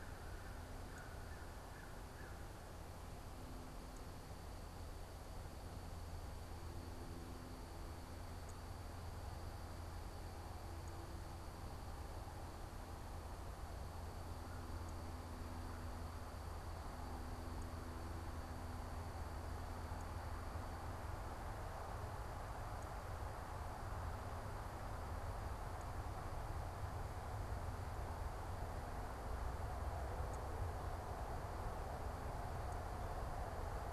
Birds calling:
American Crow (Corvus brachyrhynchos)

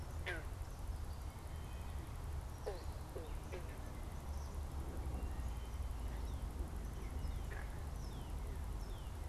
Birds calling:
Eastern Kingbird (Tyrannus tyrannus), Northern Cardinal (Cardinalis cardinalis)

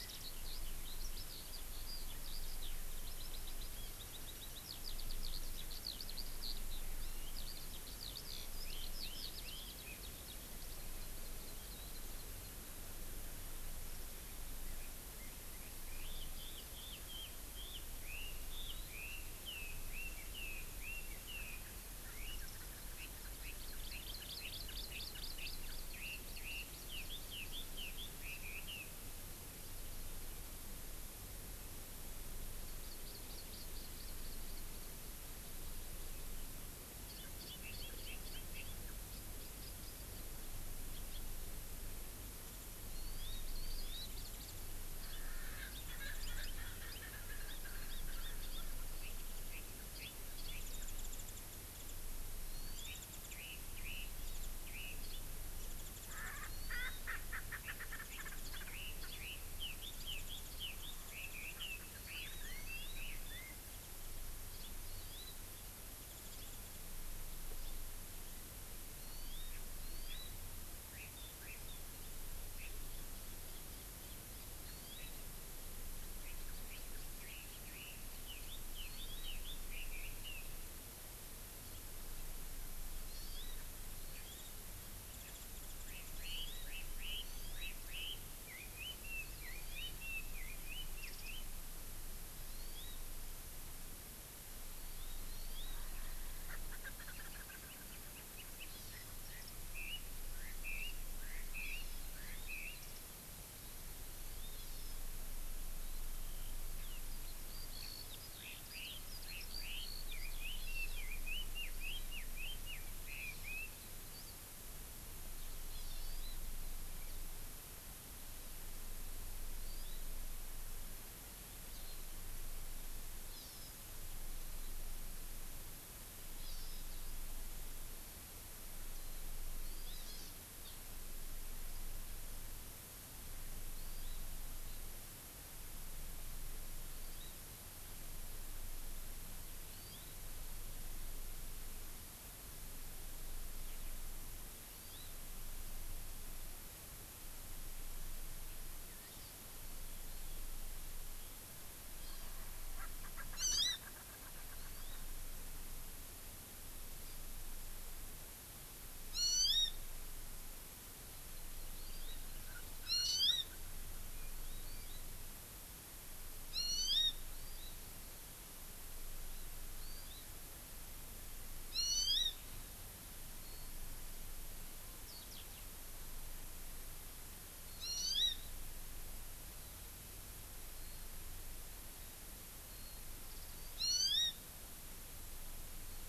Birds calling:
Red-billed Leiothrix (Leiothrix lutea), Warbling White-eye (Zosterops japonicus), Eurasian Skylark (Alauda arvensis), Erckel's Francolin (Pternistis erckelii), Hawaii Amakihi (Chlorodrepanis virens)

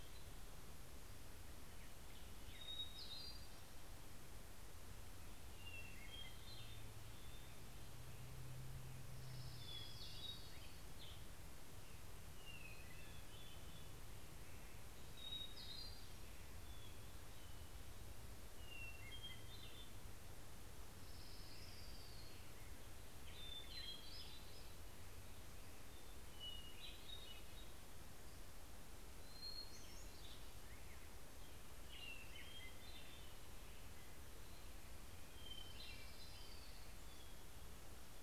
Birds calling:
Hermit Thrush (Catharus guttatus), Orange-crowned Warbler (Leiothlypis celata)

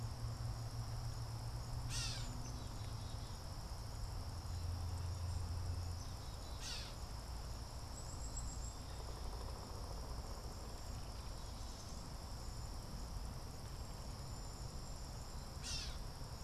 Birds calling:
Black-capped Chickadee (Poecile atricapillus), Pileated Woodpecker (Dryocopus pileatus), Cedar Waxwing (Bombycilla cedrorum), Gray Catbird (Dumetella carolinensis)

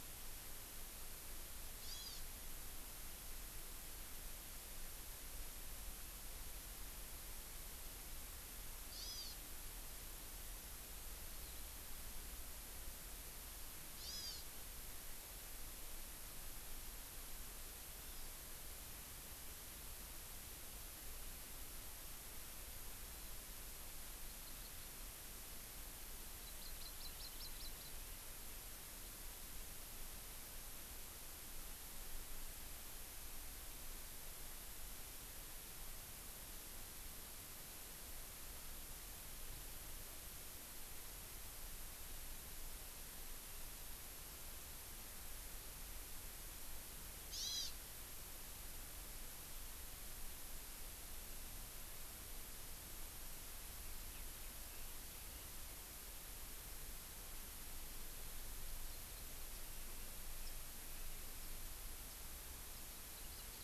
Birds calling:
Hawaii Amakihi (Chlorodrepanis virens)

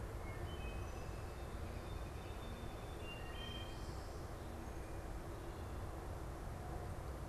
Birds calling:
Wood Thrush (Hylocichla mustelina), Song Sparrow (Melospiza melodia)

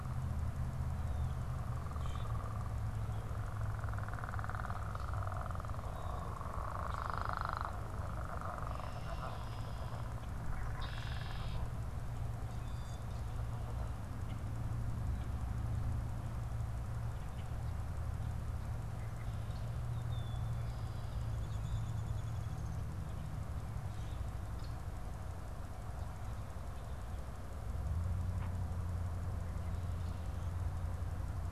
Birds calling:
Common Grackle (Quiscalus quiscula), unidentified bird, Red-winged Blackbird (Agelaius phoeniceus), Downy Woodpecker (Dryobates pubescens)

